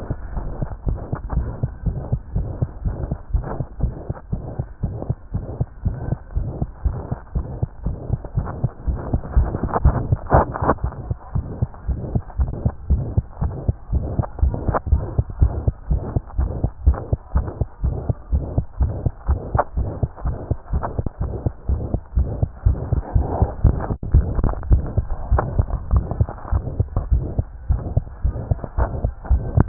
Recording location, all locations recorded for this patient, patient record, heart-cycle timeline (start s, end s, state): tricuspid valve (TV)
aortic valve (AV)+pulmonary valve (PV)+tricuspid valve (TV)+mitral valve (MV)
#Age: Child
#Sex: Male
#Height: 124.0 cm
#Weight: 22.1 kg
#Pregnancy status: False
#Murmur: Present
#Murmur locations: aortic valve (AV)+mitral valve (MV)+pulmonary valve (PV)+tricuspid valve (TV)
#Most audible location: tricuspid valve (TV)
#Systolic murmur timing: Holosystolic
#Systolic murmur shape: Plateau
#Systolic murmur grading: II/VI
#Systolic murmur pitch: Medium
#Systolic murmur quality: Harsh
#Diastolic murmur timing: nan
#Diastolic murmur shape: nan
#Diastolic murmur grading: nan
#Diastolic murmur pitch: nan
#Diastolic murmur quality: nan
#Outcome: Abnormal
#Campaign: 2015 screening campaign
0.00	11.32	unannotated
11.32	11.45	S1
11.45	11.60	systole
11.60	11.70	S2
11.70	11.86	diastole
11.86	11.98	S1
11.98	12.12	systole
12.12	12.22	S2
12.22	12.38	diastole
12.38	12.52	S1
12.52	12.64	systole
12.64	12.74	S2
12.74	12.88	diastole
12.88	13.04	S1
13.04	13.16	systole
13.16	13.26	S2
13.26	13.42	diastole
13.42	13.56	S1
13.56	13.66	systole
13.66	13.76	S2
13.76	13.92	diastole
13.92	14.06	S1
14.06	14.16	systole
14.16	14.24	S2
14.24	14.38	diastole
14.38	14.54	S1
14.54	14.64	systole
14.64	14.74	S2
14.74	14.88	diastole
14.88	15.04	S1
15.04	15.16	systole
15.16	15.26	S2
15.26	15.40	diastole
15.40	15.54	S1
15.54	15.66	systole
15.66	15.76	S2
15.76	15.90	diastole
15.90	16.04	S1
16.04	16.14	systole
16.14	16.24	S2
16.24	16.38	diastole
16.38	16.52	S1
16.52	16.60	systole
16.60	16.72	S2
16.72	16.84	diastole
16.84	16.98	S1
16.98	17.08	systole
17.08	17.18	S2
17.18	17.34	diastole
17.34	17.46	S1
17.46	17.56	systole
17.56	17.68	S2
17.68	17.82	diastole
17.82	17.96	S1
17.96	18.08	systole
18.08	18.16	S2
18.16	18.32	diastole
18.32	18.46	S1
18.46	18.56	systole
18.56	18.66	S2
18.66	18.80	diastole
18.80	18.94	S1
18.94	19.04	systole
19.04	19.12	S2
19.12	19.28	diastole
19.28	19.40	S1
19.40	19.52	systole
19.52	19.60	S2
19.60	19.76	diastole
19.76	19.88	S1
19.88	20.00	systole
20.00	20.10	S2
20.10	20.24	diastole
20.24	20.36	S1
20.36	20.46	systole
20.46	20.58	S2
20.58	20.72	diastole
20.72	20.84	S1
20.84	20.96	systole
20.96	21.04	S2
21.04	21.20	diastole
21.20	21.32	S1
21.32	21.44	systole
21.44	21.54	S2
21.54	21.68	diastole
21.68	21.80	S1
21.80	21.92	systole
21.92	22.02	S2
22.02	22.16	diastole
22.16	22.32	S1
22.32	22.40	systole
22.40	22.52	S2
22.52	22.64	diastole
22.64	22.78	S1
22.78	29.68	unannotated